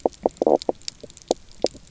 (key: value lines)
label: biophony, knock croak
recorder: SoundTrap 300